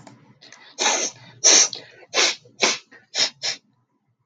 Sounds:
Sneeze